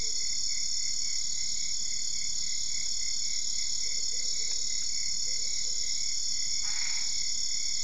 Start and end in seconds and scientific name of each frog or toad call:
6.6	7.2	Boana albopunctata